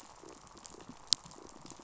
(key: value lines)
label: biophony, pulse
recorder: SoundTrap 500